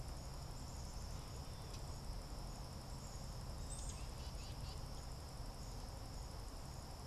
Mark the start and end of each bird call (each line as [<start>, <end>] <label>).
[0.00, 2.05] Common Yellowthroat (Geothlypis trichas)
[0.00, 7.07] Black-capped Chickadee (Poecile atricapillus)
[3.25, 4.95] Tufted Titmouse (Baeolophus bicolor)